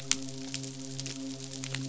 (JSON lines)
{"label": "biophony, midshipman", "recorder": "SoundTrap 500"}